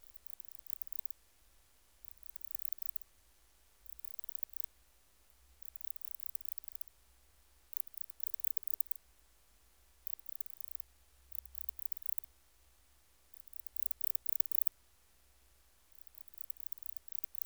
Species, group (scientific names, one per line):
Barbitistes yersini
Orthoptera